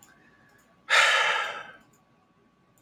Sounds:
Sigh